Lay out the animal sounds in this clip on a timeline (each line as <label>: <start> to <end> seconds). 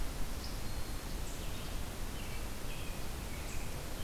Black-throated Green Warbler (Setophaga virens): 0.6 to 1.1 seconds
American Robin (Turdus migratorius): 2.1 to 4.0 seconds